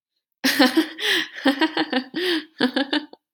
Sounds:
Laughter